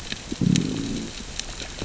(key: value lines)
label: biophony, growl
recorder: SoundTrap 600 or HydroMoth